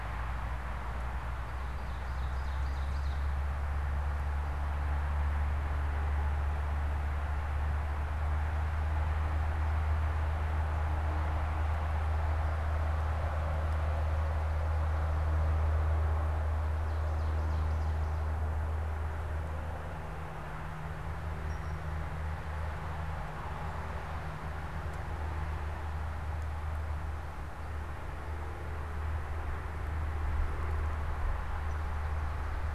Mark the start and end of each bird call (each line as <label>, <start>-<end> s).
Ovenbird (Seiurus aurocapilla), 1.4-3.3 s
Ovenbird (Seiurus aurocapilla), 16.7-18.7 s
unidentified bird, 21.3-21.9 s